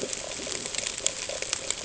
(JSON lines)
{"label": "ambient", "recorder": "HydroMoth"}